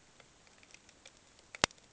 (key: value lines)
label: ambient
recorder: HydroMoth